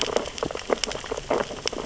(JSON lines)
{"label": "biophony, sea urchins (Echinidae)", "recorder": "SoundTrap 600 or HydroMoth"}